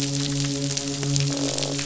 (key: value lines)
label: biophony, midshipman
recorder: SoundTrap 500

label: biophony, croak
recorder: SoundTrap 500